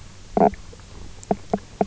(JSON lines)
{"label": "biophony, knock croak", "recorder": "SoundTrap 300"}